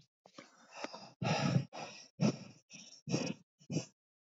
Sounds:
Sigh